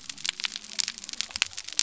{"label": "biophony", "recorder": "SoundTrap 300"}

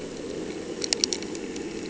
{"label": "anthrophony, boat engine", "recorder": "HydroMoth"}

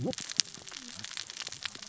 {"label": "biophony, cascading saw", "recorder": "SoundTrap 600 or HydroMoth"}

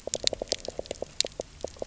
{"label": "biophony", "recorder": "SoundTrap 300"}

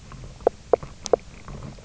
{"label": "biophony, knock croak", "recorder": "SoundTrap 300"}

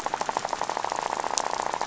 {"label": "biophony, rattle", "recorder": "SoundTrap 500"}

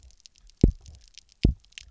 {"label": "biophony, double pulse", "recorder": "SoundTrap 300"}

